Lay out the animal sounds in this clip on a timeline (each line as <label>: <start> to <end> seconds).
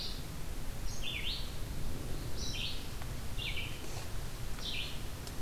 Red-eyed Vireo (Vireo olivaceus): 0.0 to 5.4 seconds